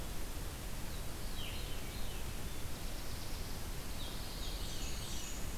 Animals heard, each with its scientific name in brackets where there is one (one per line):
Black-throated Blue Warbler (Setophaga caerulescens)
Blackburnian Warbler (Setophaga fusca)
Veery (Catharus fuscescens)